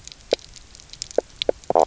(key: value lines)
label: biophony, knock croak
recorder: SoundTrap 300